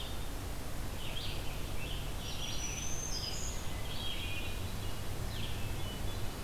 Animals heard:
Hermit Thrush (Catharus guttatus), Black-throated Green Warbler (Setophaga virens), Red-eyed Vireo (Vireo olivaceus)

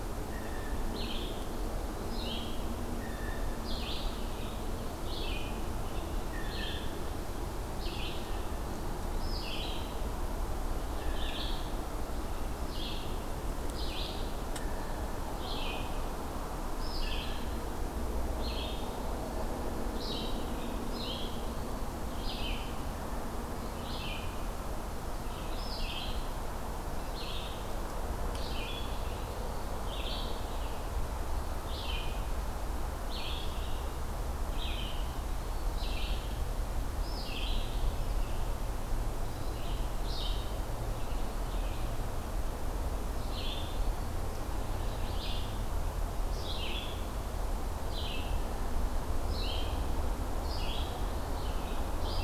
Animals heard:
Red-eyed Vireo (Vireo olivaceus), Eastern Wood-Pewee (Contopus virens), Blue Jay (Cyanocitta cristata)

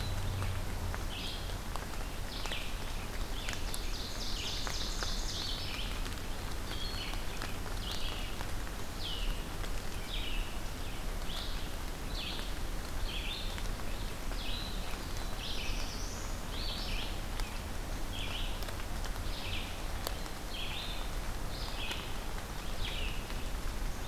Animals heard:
Black-throated Blue Warbler (Setophaga caerulescens), Ovenbird (Seiurus aurocapilla), Red-eyed Vireo (Vireo olivaceus)

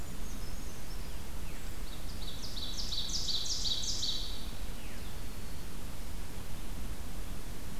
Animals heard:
Brown Creeper (Certhia americana), Veery (Catharus fuscescens), Ovenbird (Seiurus aurocapilla)

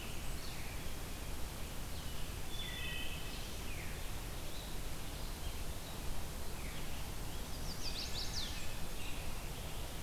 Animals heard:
Wood Thrush (Hylocichla mustelina), Blue-headed Vireo (Vireo solitarius), Blackburnian Warbler (Setophaga fusca), Veery (Catharus fuscescens), American Robin (Turdus migratorius), Chestnut-sided Warbler (Setophaga pensylvanica)

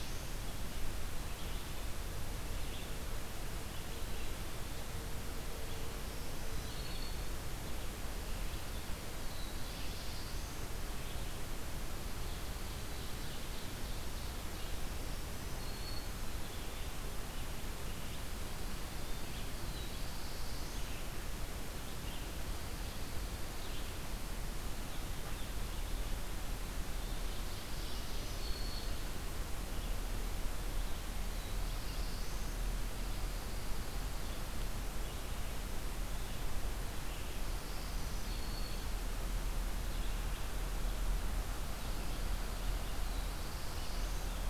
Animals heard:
Ovenbird (Seiurus aurocapilla), Black-throated Blue Warbler (Setophaga caerulescens), Pine Warbler (Setophaga pinus), Black-throated Green Warbler (Setophaga virens), Red-eyed Vireo (Vireo olivaceus)

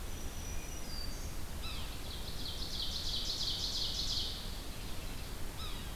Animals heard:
Ovenbird (Seiurus aurocapilla), Yellow-bellied Sapsucker (Sphyrapicus varius), Wood Thrush (Hylocichla mustelina), Black-throated Green Warbler (Setophaga virens)

